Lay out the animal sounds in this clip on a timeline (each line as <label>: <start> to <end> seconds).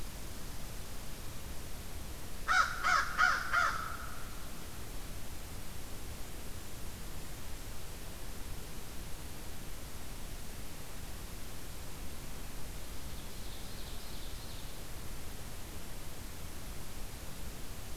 Red Squirrel (Tamiasciurus hudsonicus): 0.0 to 2.3 seconds
American Crow (Corvus brachyrhynchos): 2.3 to 3.8 seconds
Ovenbird (Seiurus aurocapilla): 12.9 to 14.9 seconds